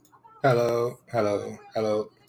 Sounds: Cough